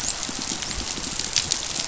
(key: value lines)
label: biophony, dolphin
recorder: SoundTrap 500